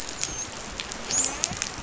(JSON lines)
{"label": "biophony, dolphin", "recorder": "SoundTrap 500"}